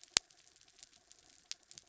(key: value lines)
label: anthrophony, mechanical
recorder: SoundTrap 300